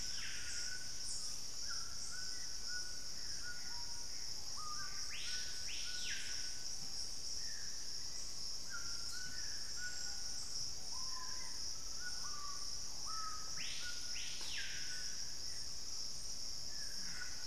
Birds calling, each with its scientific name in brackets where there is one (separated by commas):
Screaming Piha (Lipaugus vociferans), Gray Antbird (Cercomacra cinerascens), White-throated Toucan (Ramphastos tucanus), Dusky-throated Antshrike (Thamnomanes ardesiacus)